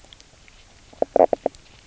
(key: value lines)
label: biophony, knock croak
recorder: SoundTrap 300